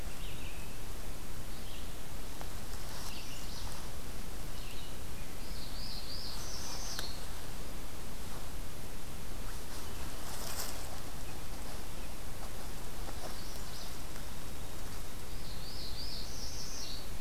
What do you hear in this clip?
Red-eyed Vireo, Magnolia Warbler, Northern Parula